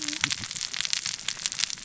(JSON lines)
{"label": "biophony, cascading saw", "recorder": "SoundTrap 600 or HydroMoth"}